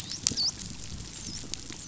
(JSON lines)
{"label": "biophony, dolphin", "recorder": "SoundTrap 500"}